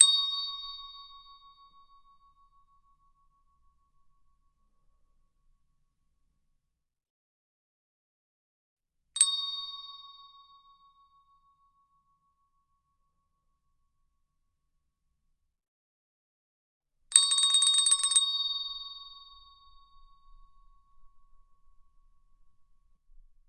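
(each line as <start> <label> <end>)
0.0 A single metallic handbell rings, echoing and gradually fading. 6.1
9.1 Double metallic handbell rings echo and gradually fade. 14.8
17.1 Multiple metallic handbells ringing and gradually fading. 23.5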